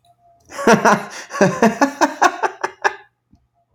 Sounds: Laughter